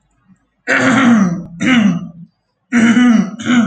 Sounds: Throat clearing